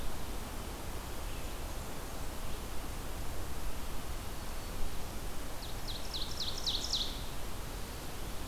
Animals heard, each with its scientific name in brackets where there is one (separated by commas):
Ovenbird (Seiurus aurocapilla)